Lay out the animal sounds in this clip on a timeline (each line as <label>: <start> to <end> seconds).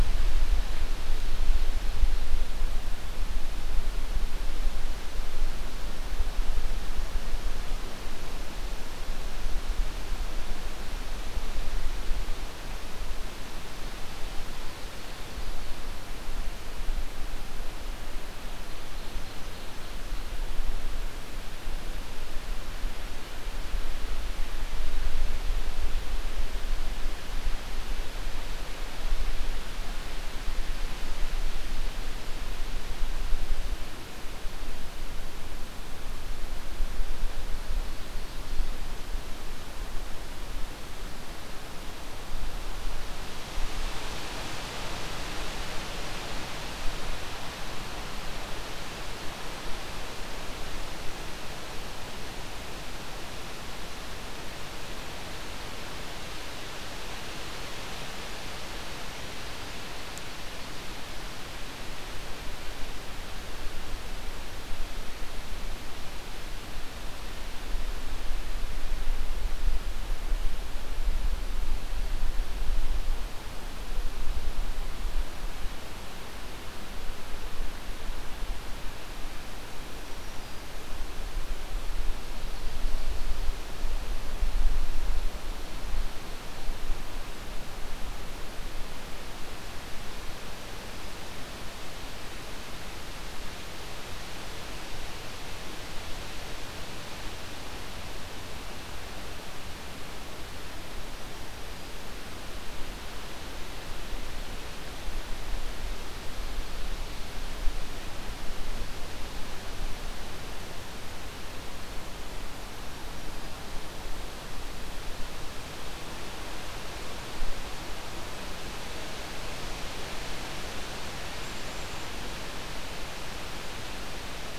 Ovenbird (Seiurus aurocapilla): 18.2 to 20.4 seconds
Ovenbird (Seiurus aurocapilla): 37.3 to 39.0 seconds
Black-throated Green Warbler (Setophaga virens): 79.8 to 80.7 seconds
Ovenbird (Seiurus aurocapilla): 82.1 to 83.6 seconds
Black-capped Chickadee (Poecile atricapillus): 121.4 to 122.1 seconds